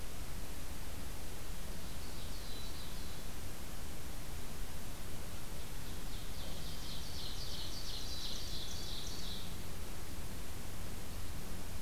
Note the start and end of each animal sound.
1.6s-3.5s: Ovenbird (Seiurus aurocapilla)
2.2s-3.1s: Black-capped Chickadee (Poecile atricapillus)
5.7s-9.6s: Ovenbird (Seiurus aurocapilla)
7.8s-8.9s: Black-capped Chickadee (Poecile atricapillus)

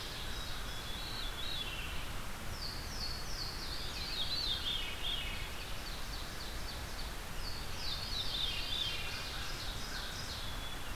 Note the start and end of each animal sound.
0.0s-0.9s: Ovenbird (Seiurus aurocapilla)
0.1s-1.4s: American Crow (Corvus brachyrhynchos)
0.7s-2.2s: Veery (Catharus fuscescens)
2.4s-4.4s: Louisiana Waterthrush (Parkesia motacilla)
3.7s-5.5s: Veery (Catharus fuscescens)
5.3s-7.2s: Ovenbird (Seiurus aurocapilla)
7.1s-9.1s: Louisiana Waterthrush (Parkesia motacilla)
7.8s-9.3s: Veery (Catharus fuscescens)
8.6s-10.6s: Ovenbird (Seiurus aurocapilla)
8.8s-10.2s: American Crow (Corvus brachyrhynchos)
9.8s-10.9s: Black-capped Chickadee (Poecile atricapillus)

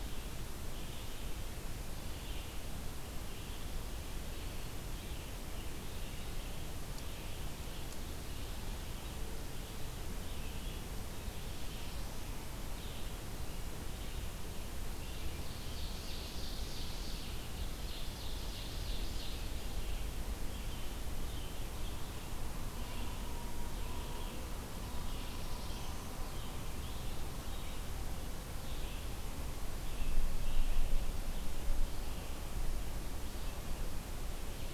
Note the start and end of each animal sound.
0.0s-34.7s: Red-eyed Vireo (Vireo olivaceus)
15.5s-19.7s: Ovenbird (Seiurus aurocapilla)
24.5s-26.2s: Black-throated Blue Warbler (Setophaga caerulescens)

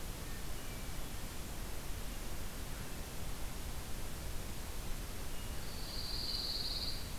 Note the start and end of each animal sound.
0.0s-1.4s: Hermit Thrush (Catharus guttatus)
5.5s-7.1s: Pine Warbler (Setophaga pinus)

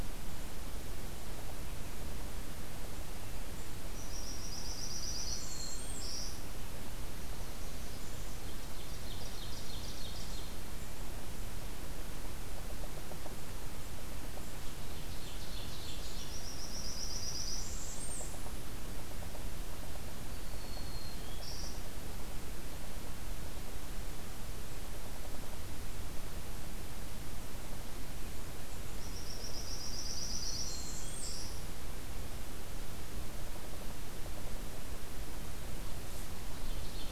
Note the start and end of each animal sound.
3.9s-6.4s: Blackburnian Warbler (Setophaga fusca)
5.1s-6.5s: Black-throated Green Warbler (Setophaga virens)
7.0s-8.5s: Blackburnian Warbler (Setophaga fusca)
8.4s-10.5s: Ovenbird (Seiurus aurocapilla)
14.7s-16.3s: Ovenbird (Seiurus aurocapilla)
16.1s-18.7s: Blackburnian Warbler (Setophaga fusca)
20.3s-21.9s: Black-throated Green Warbler (Setophaga virens)
28.9s-31.6s: Blackburnian Warbler (Setophaga fusca)
30.5s-31.7s: Black-throated Green Warbler (Setophaga virens)

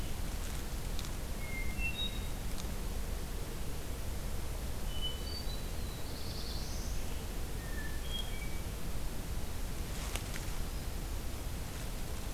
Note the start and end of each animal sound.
1.3s-2.4s: Hermit Thrush (Catharus guttatus)
4.7s-5.9s: Hermit Thrush (Catharus guttatus)
5.8s-7.0s: Black-throated Blue Warbler (Setophaga caerulescens)
7.5s-8.7s: Hermit Thrush (Catharus guttatus)

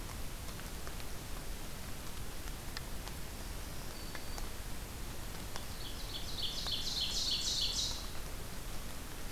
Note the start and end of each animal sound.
3.2s-4.4s: Black-throated Green Warbler (Setophaga virens)
5.7s-8.1s: Ovenbird (Seiurus aurocapilla)

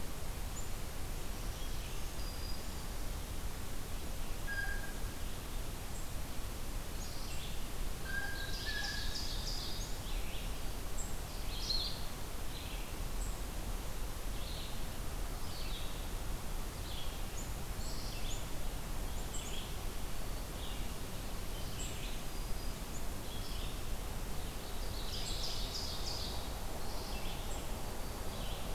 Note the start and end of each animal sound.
0.0s-28.7s: Red-eyed Vireo (Vireo olivaceus)
1.2s-3.0s: Black-throated Green Warbler (Setophaga virens)
4.5s-5.0s: Blue Jay (Cyanocitta cristata)
7.8s-9.3s: Blue Jay (Cyanocitta cristata)
8.1s-10.0s: Ovenbird (Seiurus aurocapilla)
11.6s-28.7s: Blue-headed Vireo (Vireo solitarius)
19.1s-19.6s: Black-capped Chickadee (Poecile atricapillus)
21.6s-23.1s: Black-throated Green Warbler (Setophaga virens)
24.7s-26.5s: Ovenbird (Seiurus aurocapilla)
27.5s-28.5s: Black-throated Green Warbler (Setophaga virens)

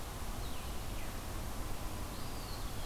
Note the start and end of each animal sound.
0.0s-2.9s: Blue-headed Vireo (Vireo solitarius)
0.9s-1.2s: Veery (Catharus fuscescens)
2.1s-2.8s: Eastern Wood-Pewee (Contopus virens)

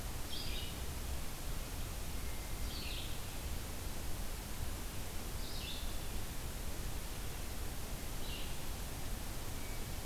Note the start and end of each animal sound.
0.0s-10.1s: Red-eyed Vireo (Vireo olivaceus)
9.4s-10.1s: Hermit Thrush (Catharus guttatus)

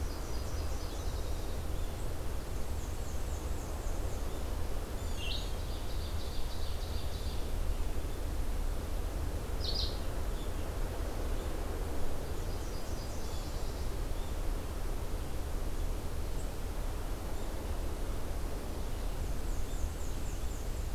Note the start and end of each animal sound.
0.0s-1.7s: Nashville Warbler (Leiothlypis ruficapilla)
2.6s-4.1s: Black-and-white Warbler (Mniotilta varia)
5.0s-5.6s: Red-eyed Vireo (Vireo olivaceus)
5.4s-7.6s: Ovenbird (Seiurus aurocapilla)
9.5s-10.0s: Red-eyed Vireo (Vireo olivaceus)
12.4s-14.0s: Nashville Warbler (Leiothlypis ruficapilla)
19.1s-20.9s: Black-and-white Warbler (Mniotilta varia)

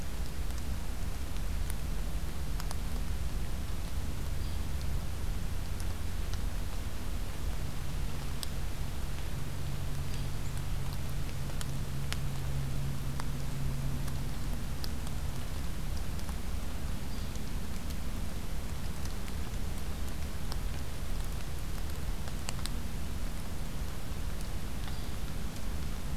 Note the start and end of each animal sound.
4.3s-4.6s: Hairy Woodpecker (Dryobates villosus)
17.0s-17.4s: Hairy Woodpecker (Dryobates villosus)
24.9s-25.1s: Hairy Woodpecker (Dryobates villosus)

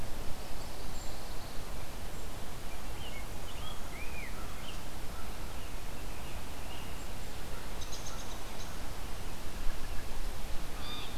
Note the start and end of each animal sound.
0.3s-1.6s: Pine Warbler (Setophaga pinus)
0.8s-1.2s: Brown Creeper (Certhia americana)
2.1s-2.4s: Brown Creeper (Certhia americana)
2.6s-7.0s: Rose-breasted Grosbeak (Pheucticus ludovicianus)
3.5s-5.4s: American Crow (Corvus brachyrhynchos)
7.7s-8.8s: American Robin (Turdus migratorius)
10.7s-11.1s: Blue Jay (Cyanocitta cristata)

